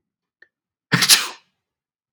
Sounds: Sneeze